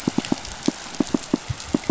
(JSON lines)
{"label": "biophony, pulse", "recorder": "SoundTrap 500"}